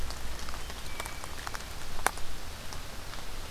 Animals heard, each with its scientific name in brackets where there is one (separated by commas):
Hermit Thrush (Catharus guttatus)